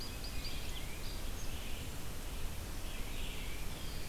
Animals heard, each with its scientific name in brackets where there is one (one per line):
Winter Wren (Troglodytes hiemalis)
Red-eyed Vireo (Vireo olivaceus)
Tufted Titmouse (Baeolophus bicolor)